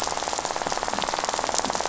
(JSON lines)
{"label": "biophony, rattle", "recorder": "SoundTrap 500"}